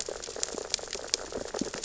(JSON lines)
{"label": "biophony, sea urchins (Echinidae)", "recorder": "SoundTrap 600 or HydroMoth"}